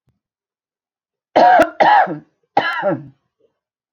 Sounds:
Cough